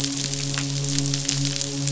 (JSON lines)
{"label": "biophony, midshipman", "recorder": "SoundTrap 500"}